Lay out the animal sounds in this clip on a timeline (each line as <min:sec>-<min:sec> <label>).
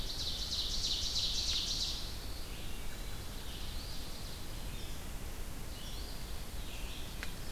0:00.0-0:02.1 Ovenbird (Seiurus aurocapilla)
0:00.0-0:07.5 Red-eyed Vireo (Vireo olivaceus)
0:02.5-0:03.7 Wood Thrush (Hylocichla mustelina)
0:05.7-0:06.3 Eastern Phoebe (Sayornis phoebe)